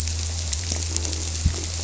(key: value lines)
label: biophony
recorder: SoundTrap 300